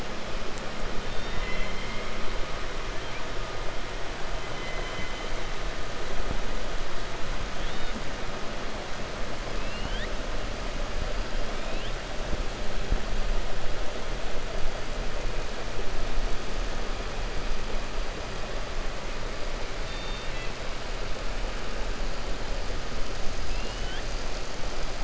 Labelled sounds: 1.0	2.1	killer whale, 1.0 to 4.6 kHz
4.5	5.2	killer whale, 1.4 to 3.1 kHz
9.5	10.1	killer whale, 1.1 to 5.2 kHz
19.8	20.5	killer whale, 1.8 to 4.6 kHz

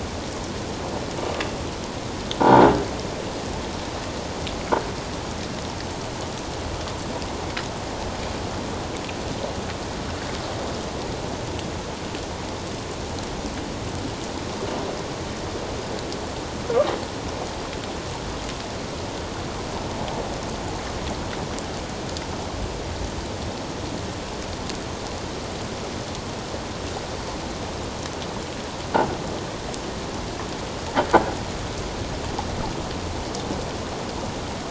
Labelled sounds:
2.4	2.7	croaking sound likely from a nearby submerged object, 0.78 to 1.6 kHz

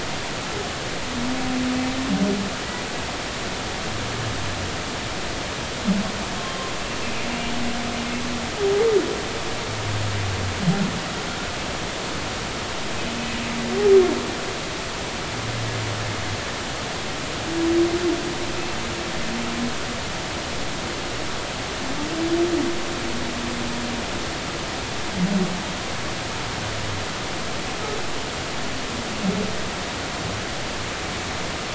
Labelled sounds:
6.4	6.7	humpback whale, 0.99 to 1.1 kHz

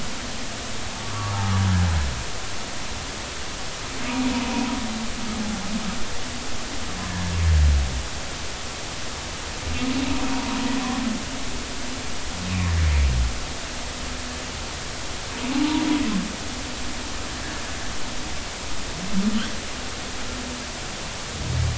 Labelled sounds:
1.0	1.4	humpback whale, 1.1 to 1.2 kHz
10.3	10.6	humpback whale, 0.90 to 1.1 kHz
15.6	15.8	humpback whale, 0.83 to 0.99 kHz

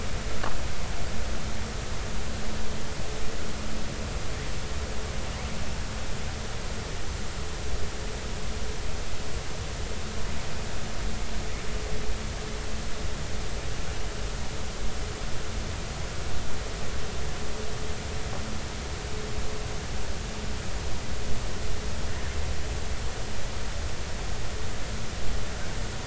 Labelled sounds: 22.1	22.3	killer whale, southern resident, J clan, L pod, call S02iii, 1.6 to 1.9 kHz

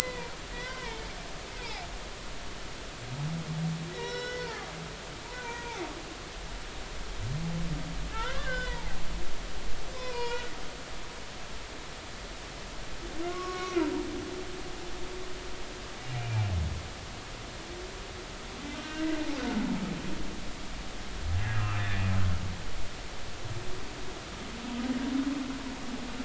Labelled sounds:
0.0	1.3	humpback whale, 0.83 to 2.4 kHz
1.6	1.8	humpback whale, 2.0 to 2.7 kHz
3.9	5.9	humpback whale, 0.80 to 5.5 kHz
8.1	9.0	humpback whale, 0.80 to 3.6 kHz
10.0	10.5	humpback whale, 0.90 to 3.0 kHz
13.3	13.8	humpback whale, 1.0 to 5.6 kHz
16.1	16.5	humpback whale, 2.3 to 2.5 kHz
18.7	19.1	humpback whale, 1.4 to 1.6 kHz

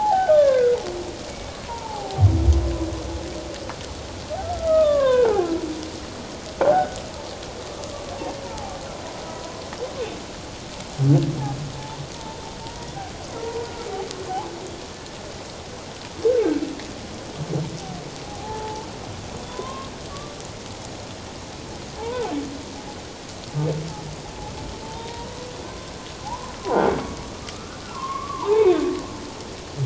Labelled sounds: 1.3	2.2	humpback whale, 0.78 to 2.4 kHz
4.5	5.5	humpback whale, 0.78 to 1.8 kHz
6.6	7.0	croaking sound likely from a nearby submerged object, 1.4 to 1.7 kHz
8.4	8.8	humpback whale, 0.78 to 0.97 kHz
9.4	9.7	humpback whale, 0.97 to 1.1 kHz
12.1	12.9	humpback whale, 0.84 to 1.0 kHz
13.6	14.0	humpback whale, 1.1 to 1.5 kHz
18.2	18.9	humpback whale, 0.78 to 0.94 kHz
19.5	20.4	humpback whale, 0.94 to 1.2 kHz
22.0	22.3	humpback whale, 0.78 to 1.1 kHz
24.8	25.9	humpback whale, 0.88 to 3.8 kHz
26.2	26.5	humpback whale, 0.78 to 1.1 kHz
27.4	28.8	humpback whale, 0.78 to 1.5 kHz

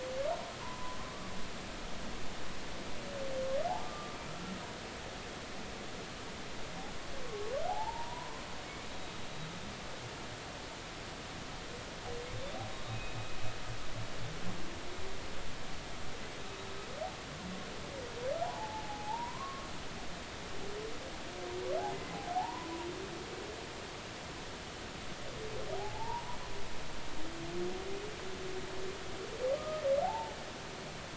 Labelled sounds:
0.6	1.0	humpback whale, 0.90 to 1.1 kHz
3.8	4.2	humpback whale, 1.2 to 1.3 kHz
7.2	8.4	humpback whale, 0.80 to 1.1 kHz
12.9	13.2	humpback whale, 2.5 to 2.6 kHz
18.4	19.7	humpback whale, 0.80 to 1.2 kHz
22.3	22.7	humpback whale, 0.80 to 1.1 kHz
25.8	26.4	humpback whale, 0.80 to 1.0 kHz
29.6	30.4	humpback whale, 0.80 to 1.3 kHz

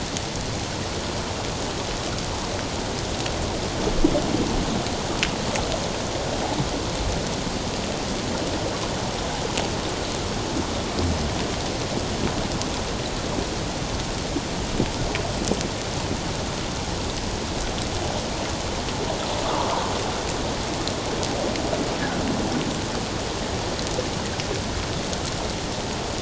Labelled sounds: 19.4	19.8	fish, 0.84 to 1.3 kHz

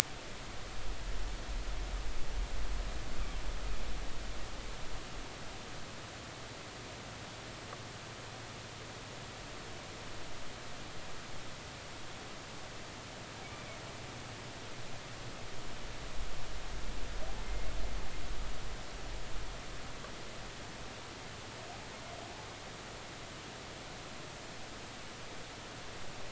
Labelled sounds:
13.4	13.8	humpback whale, 2.1 to 2.4 kHz
17.4	17.7	humpback whale, 2.0 to 2.2 kHz

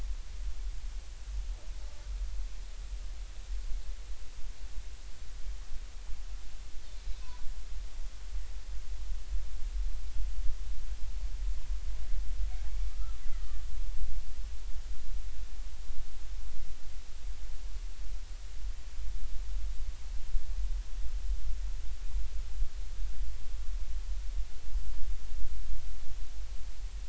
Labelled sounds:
7.1	7.5	killer whale, Bigg's (transient), 0.93 to 1.1 kHz
12.8	13.2	killer whale, Bigg's (transient), 1.1 to 1.4 kHz

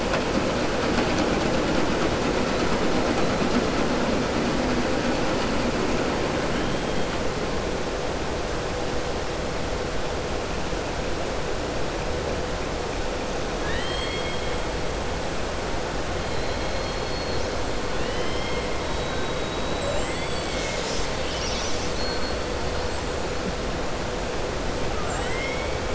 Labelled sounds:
13.5	14.5	killer whale, southern resident, 1.1 to 4.3 kHz
16.6	17.5	killer whale, southern resident, 3.3 to 4.4 kHz
17.9	18.6	killer whale, southern resident, 1.9 to 4.0 kHz
24.9	25.7	killer whale, southern resident, 0.74 to 3.8 kHz

